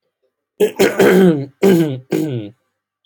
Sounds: Throat clearing